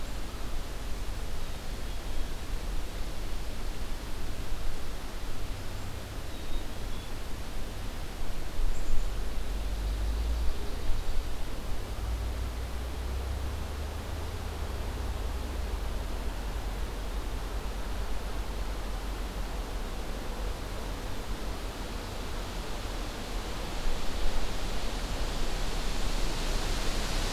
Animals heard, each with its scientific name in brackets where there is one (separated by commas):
Black-capped Chickadee (Poecile atricapillus), Ovenbird (Seiurus aurocapilla)